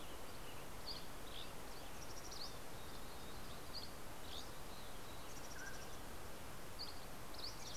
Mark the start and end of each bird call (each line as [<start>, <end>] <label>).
[0.00, 2.51] Western Tanager (Piranga ludoviciana)
[0.41, 1.81] Dusky Flycatcher (Empidonax oberholseri)
[1.51, 2.81] Mountain Chickadee (Poecile gambeli)
[3.61, 5.01] Dusky Flycatcher (Empidonax oberholseri)
[5.01, 6.61] Mountain Chickadee (Poecile gambeli)
[5.21, 6.41] Mountain Quail (Oreortyx pictus)
[6.31, 7.77] Dusky Flycatcher (Empidonax oberholseri)
[6.71, 7.77] Northern Flicker (Colaptes auratus)